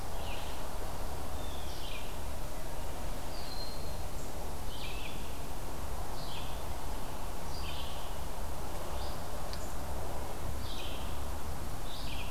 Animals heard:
Blue Jay (Cyanocitta cristata), Red-eyed Vireo (Vireo olivaceus), Broad-winged Hawk (Buteo platypterus)

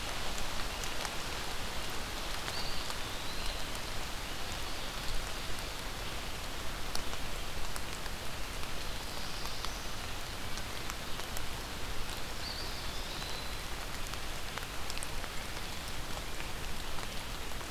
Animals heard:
Black-throated Blue Warbler (Setophaga caerulescens), Eastern Wood-Pewee (Contopus virens)

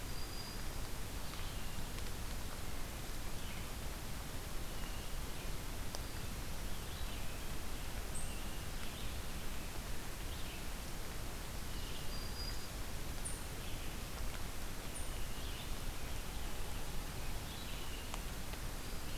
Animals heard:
Black-throated Green Warbler (Setophaga virens), Red-eyed Vireo (Vireo olivaceus), Eastern Chipmunk (Tamias striatus), Hermit Thrush (Catharus guttatus)

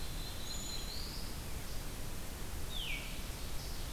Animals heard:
Red-eyed Vireo (Vireo olivaceus), Ovenbird (Seiurus aurocapilla), Veery (Catharus fuscescens), Black-capped Chickadee (Poecile atricapillus), Black-throated Blue Warbler (Setophaga caerulescens)

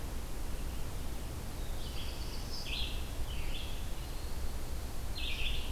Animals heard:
Eastern Wood-Pewee (Contopus virens), Black-throated Blue Warbler (Setophaga caerulescens), Red-eyed Vireo (Vireo olivaceus)

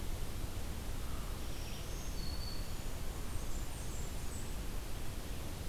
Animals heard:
Blackburnian Warbler (Setophaga fusca), Black-throated Green Warbler (Setophaga virens), American Crow (Corvus brachyrhynchos)

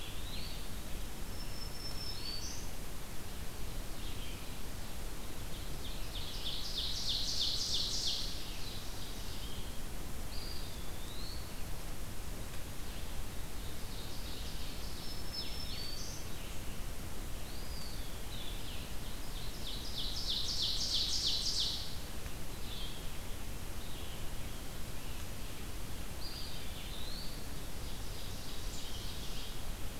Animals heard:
Red-eyed Vireo (Vireo olivaceus), Blue-headed Vireo (Vireo solitarius), Ovenbird (Seiurus aurocapilla), Black-throated Green Warbler (Setophaga virens), Eastern Wood-Pewee (Contopus virens)

